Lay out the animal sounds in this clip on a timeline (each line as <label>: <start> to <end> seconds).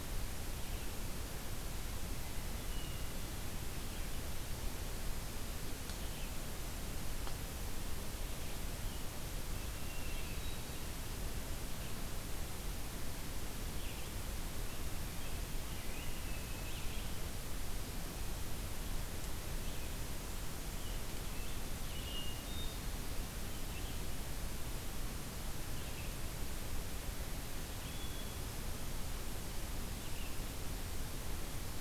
Red-eyed Vireo (Vireo olivaceus): 0.0 to 26.2 seconds
Hermit Thrush (Catharus guttatus): 2.2 to 3.4 seconds
Hermit Thrush (Catharus guttatus): 9.4 to 10.7 seconds
Hermit Thrush (Catharus guttatus): 21.8 to 23.1 seconds
Hermit Thrush (Catharus guttatus): 27.7 to 28.7 seconds